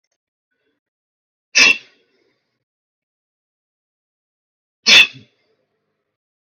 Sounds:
Sneeze